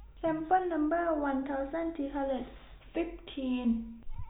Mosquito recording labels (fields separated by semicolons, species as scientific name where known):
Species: no mosquito; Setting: cup